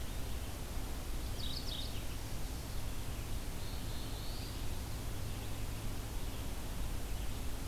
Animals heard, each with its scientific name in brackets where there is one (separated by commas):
Red-eyed Vireo (Vireo olivaceus), Mourning Warbler (Geothlypis philadelphia), Black-throated Blue Warbler (Setophaga caerulescens)